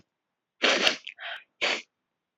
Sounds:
Sniff